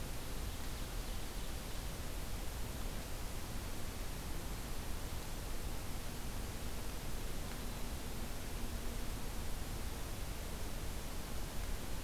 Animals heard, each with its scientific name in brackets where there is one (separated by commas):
Ovenbird (Seiurus aurocapilla)